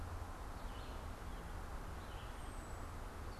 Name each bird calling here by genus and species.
Vireo olivaceus, unidentified bird